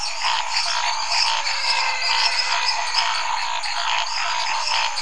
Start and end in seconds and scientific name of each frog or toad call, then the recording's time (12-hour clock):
0.0	5.0	Boana raniceps
0.0	5.0	Dendropsophus minutus
0.0	5.0	Physalaemus nattereri
0.0	5.0	Scinax fuscovarius
1.2	3.7	Elachistocleis matogrosso
1.4	3.4	Physalaemus albonotatus
9:15pm